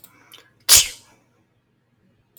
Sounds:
Sneeze